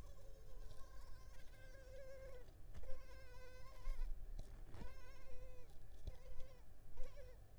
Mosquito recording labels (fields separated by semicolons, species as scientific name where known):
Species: Culex tigripes; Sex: female; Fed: unfed; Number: one; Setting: cup